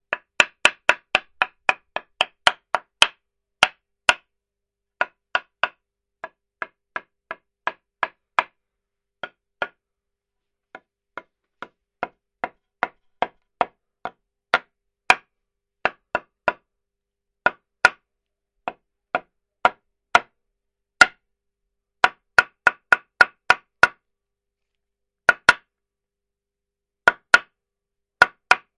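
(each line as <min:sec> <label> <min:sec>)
0:00.0 A hammer is striking a wooden block. 0:28.8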